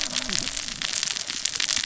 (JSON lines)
{"label": "biophony, cascading saw", "recorder": "SoundTrap 600 or HydroMoth"}